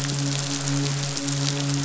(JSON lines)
{"label": "biophony, midshipman", "recorder": "SoundTrap 500"}